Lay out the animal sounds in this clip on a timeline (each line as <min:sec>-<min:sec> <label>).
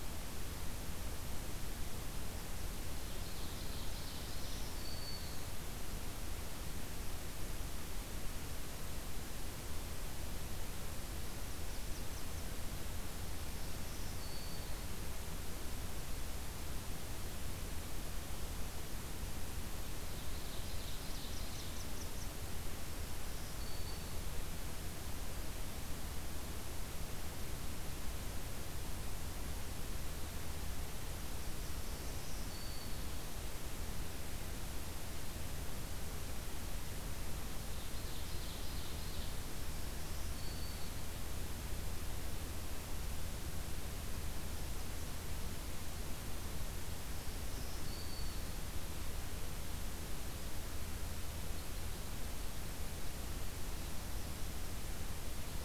0:02.9-0:04.8 Ovenbird (Seiurus aurocapilla)
0:04.1-0:05.5 Black-throated Green Warbler (Setophaga virens)
0:11.4-0:12.5 Blackburnian Warbler (Setophaga fusca)
0:13.4-0:14.8 Black-throated Green Warbler (Setophaga virens)
0:20.1-0:21.8 Ovenbird (Seiurus aurocapilla)
0:21.5-0:22.4 Blackburnian Warbler (Setophaga fusca)
0:23.1-0:24.3 Black-throated Green Warbler (Setophaga virens)
0:31.7-0:33.2 Black-throated Green Warbler (Setophaga virens)
0:37.7-0:39.4 Ovenbird (Seiurus aurocapilla)
0:39.7-0:41.2 Black-throated Green Warbler (Setophaga virens)
0:47.0-0:48.6 Black-throated Green Warbler (Setophaga virens)